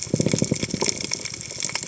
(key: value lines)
label: biophony
recorder: HydroMoth